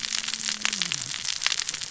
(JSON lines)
{"label": "biophony, cascading saw", "recorder": "SoundTrap 600 or HydroMoth"}